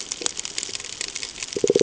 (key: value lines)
label: ambient
recorder: HydroMoth